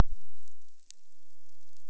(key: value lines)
label: biophony
recorder: SoundTrap 300